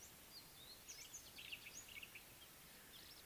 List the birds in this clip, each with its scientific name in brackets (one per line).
Amethyst Sunbird (Chalcomitra amethystina)